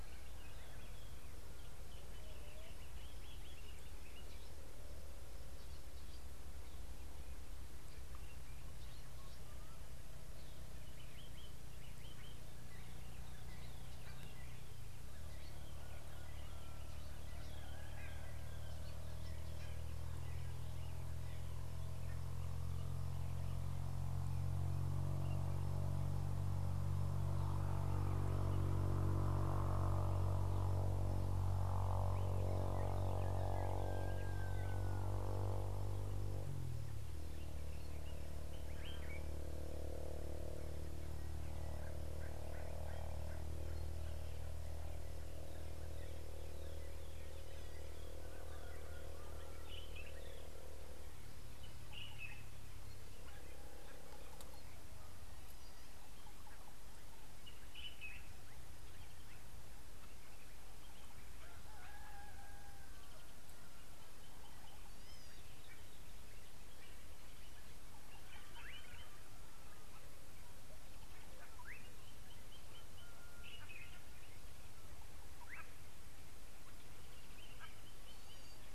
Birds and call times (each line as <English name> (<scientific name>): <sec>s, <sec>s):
Common Bulbul (Pycnonotus barbatus): 38.8s, 52.1s, 57.7s
Slate-colored Boubou (Laniarius funebris): 68.6s, 75.5s
White-bellied Go-away-bird (Corythaixoides leucogaster): 77.6s